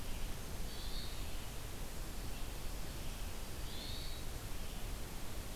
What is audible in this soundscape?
Hermit Thrush